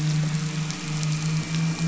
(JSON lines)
{"label": "anthrophony, boat engine", "recorder": "SoundTrap 500"}